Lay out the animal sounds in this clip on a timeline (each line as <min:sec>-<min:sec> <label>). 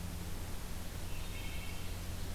0:01.1-0:02.0 Wood Thrush (Hylocichla mustelina)